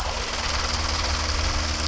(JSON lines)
{"label": "anthrophony, boat engine", "recorder": "SoundTrap 300"}